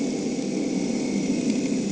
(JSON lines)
{"label": "anthrophony, boat engine", "recorder": "HydroMoth"}